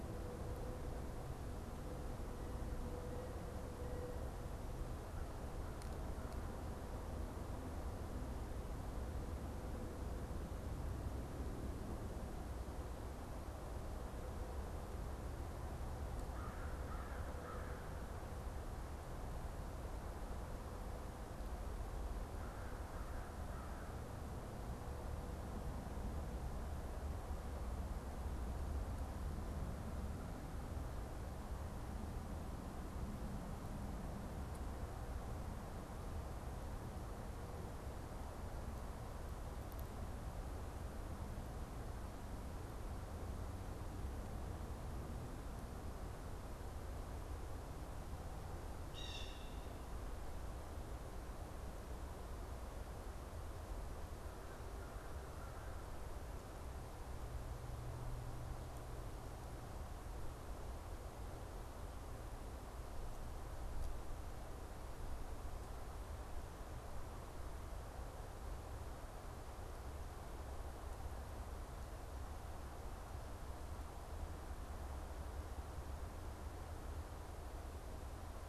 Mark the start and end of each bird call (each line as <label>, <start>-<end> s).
American Crow (Corvus brachyrhynchos), 16.2-17.8 s
Blue Jay (Cyanocitta cristata), 48.8-49.4 s